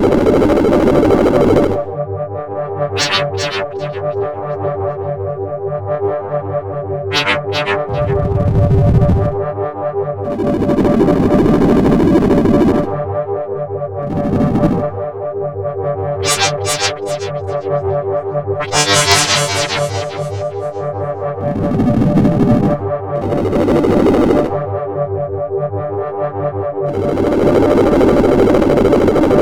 Are these drums?
no